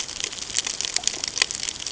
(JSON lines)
{"label": "ambient", "recorder": "HydroMoth"}